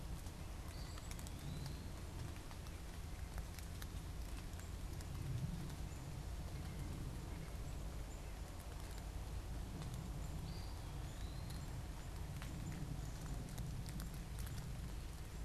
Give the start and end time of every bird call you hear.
0.4s-1.9s: Eastern Wood-Pewee (Contopus virens)
0.5s-14.0s: Black-capped Chickadee (Poecile atricapillus)
6.3s-9.3s: White-breasted Nuthatch (Sitta carolinensis)
10.3s-11.7s: Eastern Wood-Pewee (Contopus virens)

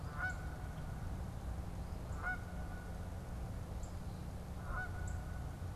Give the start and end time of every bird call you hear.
0.0s-5.8s: Canada Goose (Branta canadensis)
0.0s-5.8s: Northern Cardinal (Cardinalis cardinalis)
0.6s-5.8s: Eastern Phoebe (Sayornis phoebe)

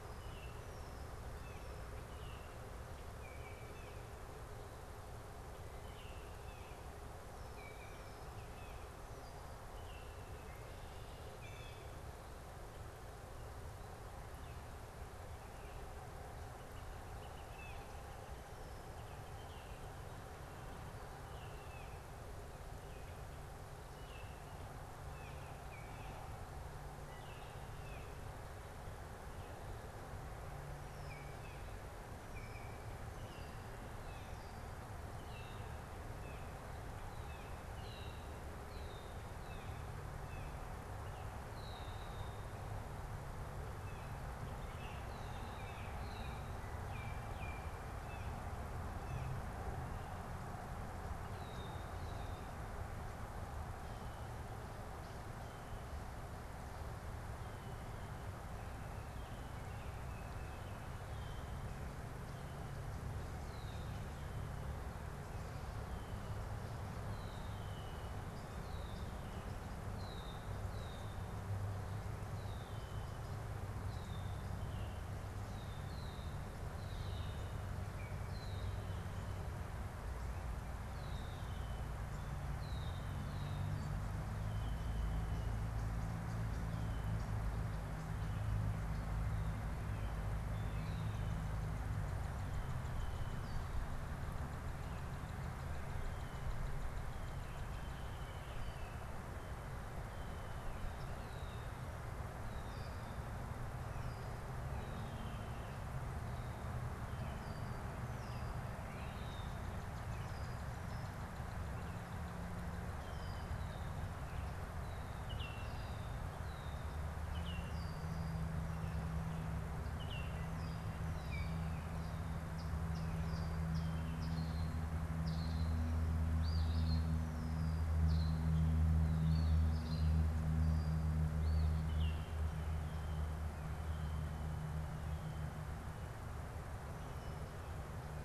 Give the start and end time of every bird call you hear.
0.1s-4.2s: Baltimore Oriole (Icterus galbula)
7.3s-11.9s: Baltimore Oriole (Icterus galbula)
16.2s-20.3s: Northern Flicker (Colaptes auratus)
17.5s-18.0s: Baltimore Oriole (Icterus galbula)
23.7s-28.4s: Baltimore Oriole (Icterus galbula)
30.8s-33.2s: Baltimore Oriole (Icterus galbula)
33.2s-36.6s: Blue Jay (Cyanocitta cristata)
37.1s-49.5s: Blue Jay (Cyanocitta cristata)
37.6s-42.9s: Red-winged Blackbird (Agelaius phoeniceus)
46.7s-48.4s: Baltimore Oriole (Icterus galbula)
51.2s-52.6s: Red-winged Blackbird (Agelaius phoeniceus)
59.3s-61.1s: Baltimore Oriole (Icterus galbula)
61.1s-85.8s: Red-winged Blackbird (Agelaius phoeniceus)
77.6s-78.4s: Baltimore Oriole (Icterus galbula)
85.5s-88.3s: European Starling (Sturnus vulgaris)
94.4s-98.1s: Northern Cardinal (Cardinalis cardinalis)
100.9s-114.2s: Red-winged Blackbird (Agelaius phoeniceus)
108.7s-114.2s: Northern Cardinal (Cardinalis cardinalis)
115.2s-115.7s: Baltimore Oriole (Icterus galbula)
115.6s-122.2s: Red-winged Blackbird (Agelaius phoeniceus)
117.3s-117.8s: Baltimore Oriole (Icterus galbula)
119.8s-121.7s: Baltimore Oriole (Icterus galbula)
122.4s-131.9s: Eastern Phoebe (Sayornis phoebe)
131.8s-132.3s: Baltimore Oriole (Icterus galbula)

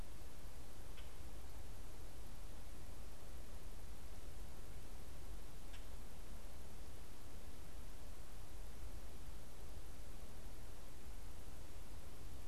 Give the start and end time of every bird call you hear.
0.0s-5.9s: Common Grackle (Quiscalus quiscula)

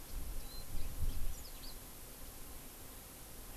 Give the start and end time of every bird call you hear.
0.4s-0.7s: Warbling White-eye (Zosterops japonicus)
1.3s-1.8s: Yellow-fronted Canary (Crithagra mozambica)

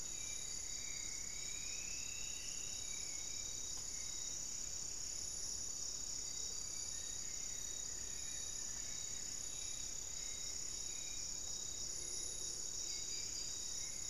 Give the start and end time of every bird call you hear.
0.0s-2.8s: Striped Woodcreeper (Xiphorhynchus obsoletus)
0.0s-3.4s: Spot-winged Antshrike (Pygiptila stellaris)
0.0s-14.1s: Hauxwell's Thrush (Turdus hauxwelli)
5.1s-8.0s: Undulated Tinamou (Crypturellus undulatus)
6.7s-9.1s: Buff-throated Woodcreeper (Xiphorhynchus guttatus)

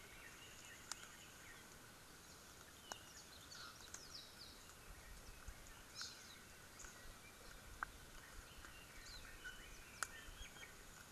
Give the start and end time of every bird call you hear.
4.0s-4.3s: Warbling White-eye (Zosterops japonicus)

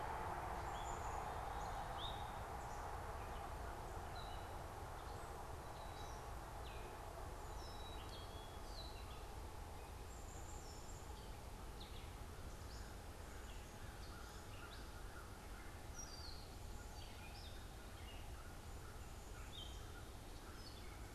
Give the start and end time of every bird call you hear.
0.0s-11.4s: Black-capped Chickadee (Poecile atricapillus)
0.0s-21.1s: Gray Catbird (Dumetella carolinensis)
5.1s-21.1s: American Crow (Corvus brachyrhynchos)

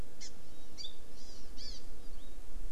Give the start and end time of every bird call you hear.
0.2s-1.9s: Hawaii Amakihi (Chlorodrepanis virens)

